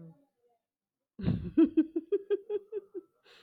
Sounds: Laughter